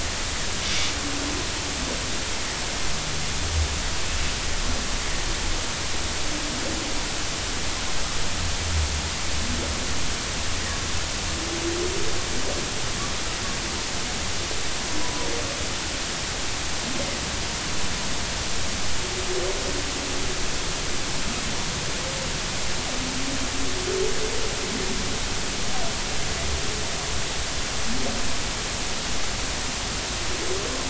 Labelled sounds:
15.0	15.3	humpback whale, 0.93 to 1.1 kHz

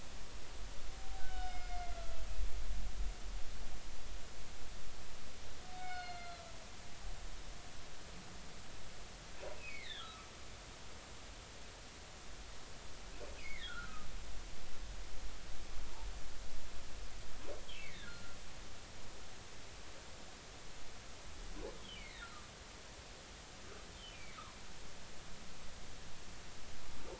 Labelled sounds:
1.2	2.0	humpback whale, 1.4 to 5.3 kHz
5.7	6.4	humpback whale, 1.3 to 4.4 kHz
9.6	10.3	humpback whale, 1.1 to 4.2 kHz
13.4	14.1	humpback whale, 1.2 to 2.7 kHz
17.7	18.4	humpback whale, 1.3 to 2.4 kHz
21.8	22.5	humpback whale, 1.2 to 3.4 kHz
24.1	24.4	humpback whale, 2.0 to 2.5 kHz

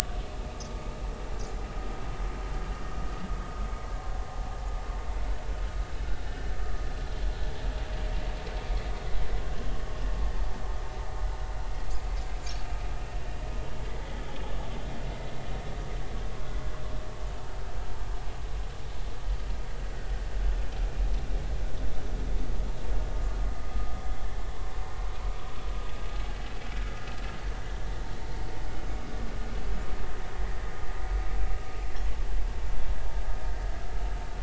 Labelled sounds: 4.2	4.5	vessel noise, 0.80 to 0.86 kHz

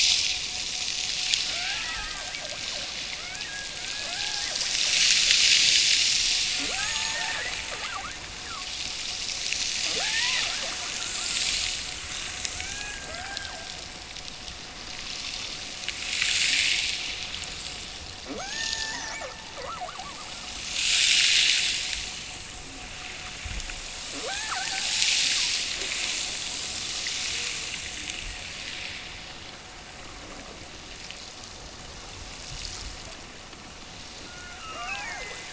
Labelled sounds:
1.5	2.8	killer whale, Bigg's (transient), Gulf of Alaska transient, 0.39 to 1.8 kHz
3.1	4.7	killer whale, Bigg's (transient), Gulf of Alaska transient, 0.39 to 2.7 kHz
6.5	8.2	killer whale, Bigg's (transient), Gulf of Alaska transient, 0.18 to 2.1 kHz
9.9	11.4	killer whale, Bigg's (transient), Gulf of Alaska transient, 0.25 to 2.1 kHz
12.5	13.8	killer whale, Bigg's (transient), Gulf of Alaska transient, 0.46 to 2.6 kHz
18.2	20.4	killer whale, Bigg's (transient), Gulf of Alaska transient, 0.23 to 1.9 kHz
24.1	25.2	killer whale, Bigg's (transient), Gulf of Alaska transient, 0.21 to 2.0 kHz
34.1	35.5	killer whale, Bigg's (transient), Gulf of Alaska transient, 0.23 to 2.9 kHz

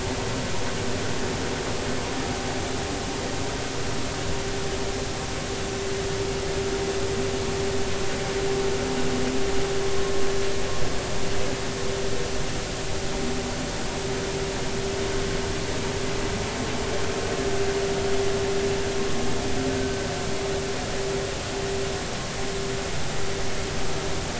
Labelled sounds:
20.7	21.0	vessel noise, 1.5 to 1.6 kHz

